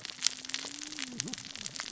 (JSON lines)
{"label": "biophony, cascading saw", "recorder": "SoundTrap 600 or HydroMoth"}